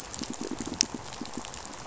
{"label": "biophony, pulse", "recorder": "SoundTrap 500"}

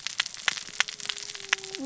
{"label": "biophony, cascading saw", "recorder": "SoundTrap 600 or HydroMoth"}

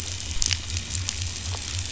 {"label": "biophony", "recorder": "SoundTrap 500"}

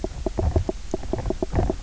{"label": "biophony, knock croak", "recorder": "SoundTrap 300"}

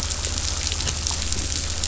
{"label": "anthrophony, boat engine", "recorder": "SoundTrap 500"}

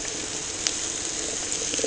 {"label": "ambient", "recorder": "HydroMoth"}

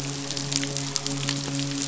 {"label": "biophony, midshipman", "recorder": "SoundTrap 500"}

